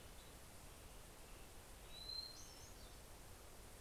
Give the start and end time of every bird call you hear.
[0.13, 3.23] Western Tanager (Piranga ludoviciana)
[1.53, 3.43] Hermit Thrush (Catharus guttatus)

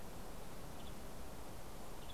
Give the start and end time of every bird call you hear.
[0.00, 2.13] Western Tanager (Piranga ludoviciana)
[0.15, 2.13] Golden-crowned Kinglet (Regulus satrapa)

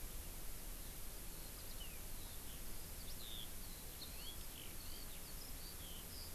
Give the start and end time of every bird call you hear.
[0.73, 6.34] Eurasian Skylark (Alauda arvensis)
[3.93, 4.33] House Finch (Haemorhous mexicanus)

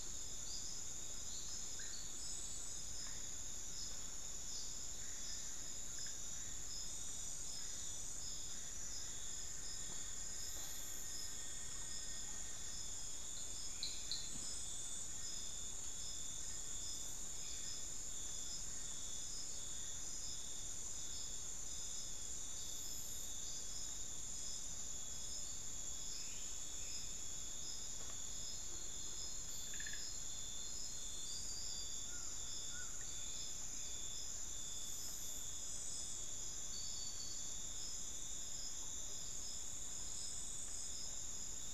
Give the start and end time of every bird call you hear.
[0.00, 21.58] Ferruginous Pygmy-Owl (Glaucidium brasilianum)
[24.38, 29.38] Tawny-bellied Screech-Owl (Megascops watsonii)
[26.08, 27.18] unidentified bird
[29.88, 36.18] Ferruginous Pygmy-Owl (Glaucidium brasilianum)
[31.98, 33.08] Buckley's Forest-Falcon (Micrastur buckleyi)
[35.68, 41.68] Tawny-bellied Screech-Owl (Megascops watsonii)

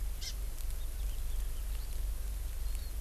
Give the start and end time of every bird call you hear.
[0.20, 0.30] Hawaii Amakihi (Chlorodrepanis virens)
[2.60, 2.90] Warbling White-eye (Zosterops japonicus)

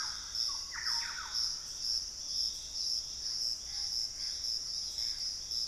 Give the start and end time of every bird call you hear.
[0.00, 1.93] Thrush-like Wren (Campylorhynchus turdinus)
[2.93, 5.67] Gray Antbird (Cercomacra cinerascens)
[3.53, 5.67] Screaming Piha (Lipaugus vociferans)

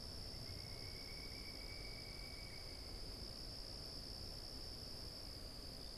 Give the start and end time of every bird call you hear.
[0.00, 3.10] Pileated Woodpecker (Dryocopus pileatus)

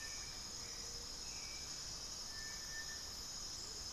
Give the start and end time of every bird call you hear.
[0.00, 3.92] Hauxwell's Thrush (Turdus hauxwelli)
[0.26, 1.55] Gray-fronted Dove (Leptotila rufaxilla)
[3.35, 3.92] Amazonian Motmot (Momotus momota)

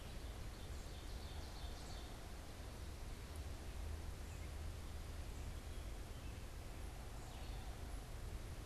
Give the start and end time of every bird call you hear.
[0.00, 2.33] Ovenbird (Seiurus aurocapilla)
[0.00, 6.83] Red-eyed Vireo (Vireo olivaceus)
[0.00, 8.65] Wood Thrush (Hylocichla mustelina)

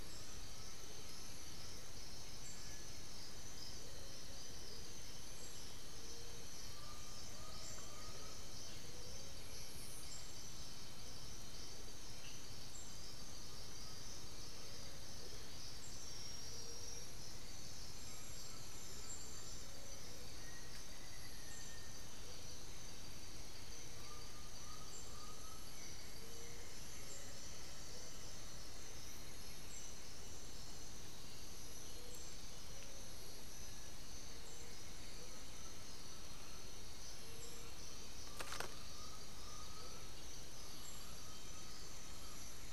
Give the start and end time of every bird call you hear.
[0.00, 2.10] Undulated Tinamou (Crypturellus undulatus)
[1.20, 10.40] White-winged Becard (Pachyramphus polychopterus)
[6.60, 14.80] Undulated Tinamou (Crypturellus undulatus)
[13.40, 20.40] Hauxwell's Thrush (Turdus hauxwelli)
[18.00, 19.60] Undulated Tinamou (Crypturellus undulatus)
[20.30, 22.10] Black-faced Antthrush (Formicarius analis)
[22.20, 22.50] Amazonian Motmot (Momotus momota)
[23.90, 25.80] Undulated Tinamou (Crypturellus undulatus)
[25.60, 27.60] Buff-throated Woodcreeper (Xiphorhynchus guttatus)
[28.70, 30.30] White-winged Becard (Pachyramphus polychopterus)
[33.10, 40.10] Amazonian Motmot (Momotus momota)
[35.10, 42.50] Undulated Tinamou (Crypturellus undulatus)

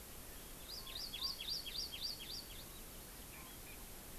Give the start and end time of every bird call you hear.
[0.56, 2.76] Hawaii Amakihi (Chlorodrepanis virens)

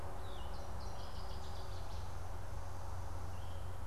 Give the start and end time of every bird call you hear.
[0.00, 3.87] Yellow-throated Vireo (Vireo flavifrons)
[0.10, 2.30] Northern Waterthrush (Parkesia noveboracensis)
[3.00, 3.80] Veery (Catharus fuscescens)

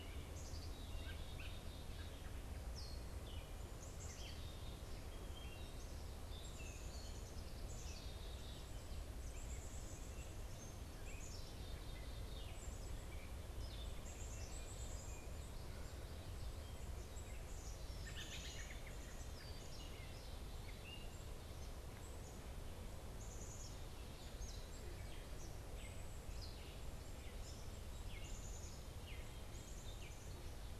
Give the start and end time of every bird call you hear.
[0.00, 30.79] Gray Catbird (Dumetella carolinensis)
[0.48, 30.79] Black-capped Chickadee (Poecile atricapillus)
[17.98, 19.08] American Robin (Turdus migratorius)

